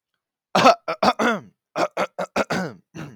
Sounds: Throat clearing